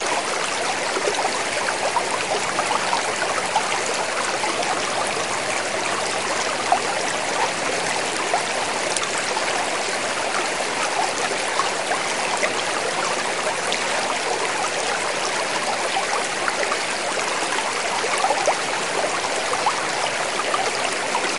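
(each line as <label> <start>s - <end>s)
A river roaring at medium speed. 0.0s - 21.4s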